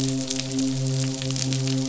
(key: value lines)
label: biophony, midshipman
recorder: SoundTrap 500